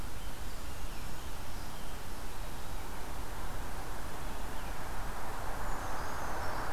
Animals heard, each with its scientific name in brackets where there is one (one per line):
Scarlet Tanager (Piranga olivacea)
Brown Creeper (Certhia americana)